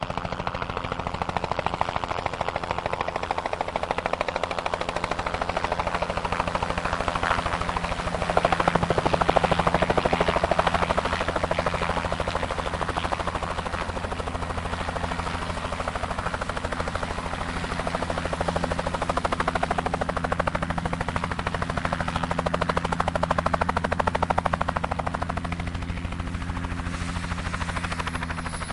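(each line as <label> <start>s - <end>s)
A helicopter sound starts distant and gradually grows closer. 0.0s - 28.7s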